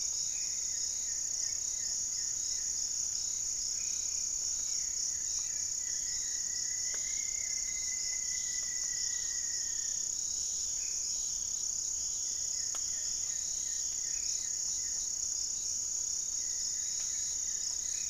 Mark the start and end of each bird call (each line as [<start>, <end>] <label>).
[0.00, 4.49] Black-faced Antthrush (Formicarius analis)
[0.00, 7.79] Plumbeous Pigeon (Patagioenas plumbea)
[0.00, 18.09] Goeldi's Antbird (Akletos goeldii)
[0.00, 18.09] Hauxwell's Thrush (Turdus hauxwelli)
[4.59, 10.09] Rufous-fronted Antthrush (Formicarius rufifrons)
[10.69, 11.29] Black-faced Antthrush (Formicarius analis)
[13.99, 18.09] Black-faced Antthrush (Formicarius analis)